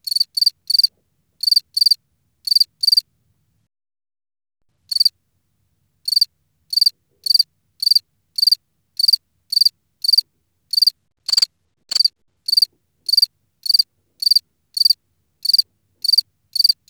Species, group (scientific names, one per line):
Gryllus campestris
Orthoptera